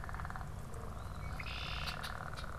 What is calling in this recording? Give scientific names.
Agelaius phoeniceus